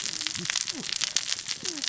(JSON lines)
{"label": "biophony, cascading saw", "recorder": "SoundTrap 600 or HydroMoth"}